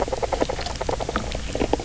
{"label": "biophony, grazing", "recorder": "SoundTrap 300"}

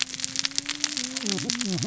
{"label": "biophony, cascading saw", "recorder": "SoundTrap 600 or HydroMoth"}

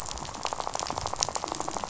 {"label": "biophony, rattle", "recorder": "SoundTrap 500"}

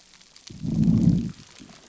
{"label": "biophony, low growl", "recorder": "SoundTrap 300"}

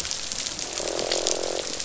{"label": "biophony, croak", "recorder": "SoundTrap 500"}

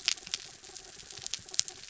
{"label": "anthrophony, mechanical", "recorder": "SoundTrap 300"}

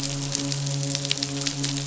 {"label": "biophony, midshipman", "recorder": "SoundTrap 500"}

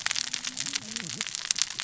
{"label": "biophony, cascading saw", "recorder": "SoundTrap 600 or HydroMoth"}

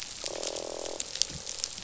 {"label": "biophony, croak", "recorder": "SoundTrap 500"}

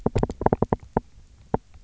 {"label": "biophony, knock", "recorder": "SoundTrap 300"}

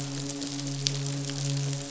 {"label": "biophony, midshipman", "recorder": "SoundTrap 500"}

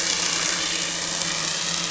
{"label": "anthrophony, boat engine", "recorder": "SoundTrap 500"}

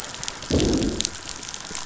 {"label": "anthrophony, boat engine", "recorder": "SoundTrap 500"}
{"label": "biophony, growl", "recorder": "SoundTrap 500"}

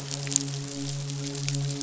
{"label": "biophony, midshipman", "recorder": "SoundTrap 500"}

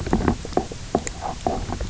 {"label": "biophony, knock croak", "recorder": "SoundTrap 300"}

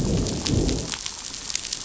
{"label": "biophony, growl", "recorder": "SoundTrap 500"}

